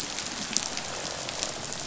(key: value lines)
label: biophony, croak
recorder: SoundTrap 500